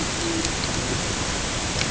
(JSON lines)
{"label": "ambient", "recorder": "HydroMoth"}